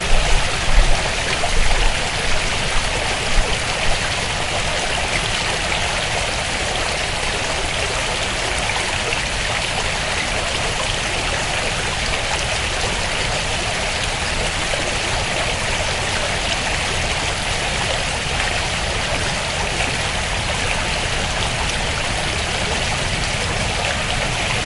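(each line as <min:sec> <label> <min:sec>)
0:00.0 Water running closely in a river with steady trickling and irregular splashing sounds accompanied by a deep growl in the background. 0:24.6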